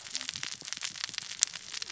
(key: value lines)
label: biophony, cascading saw
recorder: SoundTrap 600 or HydroMoth